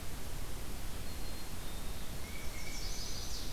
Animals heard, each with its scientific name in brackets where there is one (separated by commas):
Chestnut-sided Warbler (Setophaga pensylvanica), Black-capped Chickadee (Poecile atricapillus), Tufted Titmouse (Baeolophus bicolor)